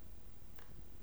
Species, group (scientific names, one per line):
Poecilimon zimmeri
Orthoptera